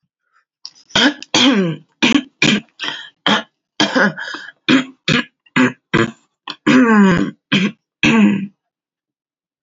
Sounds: Throat clearing